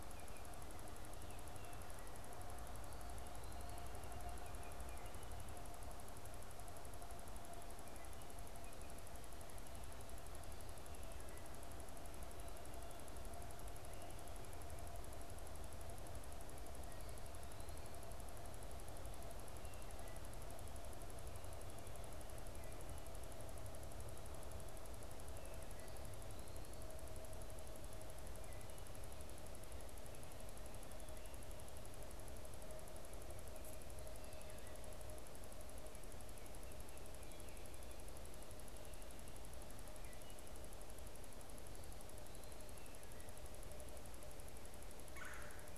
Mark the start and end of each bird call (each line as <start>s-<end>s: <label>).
39.9s-40.5s: Wood Thrush (Hylocichla mustelina)
45.0s-45.7s: Red-bellied Woodpecker (Melanerpes carolinus)